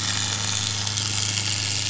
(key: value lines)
label: anthrophony, boat engine
recorder: SoundTrap 500